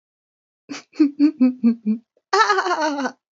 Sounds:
Laughter